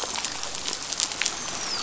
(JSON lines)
{"label": "biophony, dolphin", "recorder": "SoundTrap 500"}